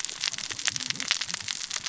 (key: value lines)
label: biophony, cascading saw
recorder: SoundTrap 600 or HydroMoth